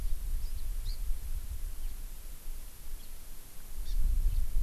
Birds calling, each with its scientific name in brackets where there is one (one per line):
House Finch (Haemorhous mexicanus)
Hawaii Amakihi (Chlorodrepanis virens)